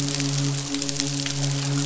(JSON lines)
{"label": "biophony, midshipman", "recorder": "SoundTrap 500"}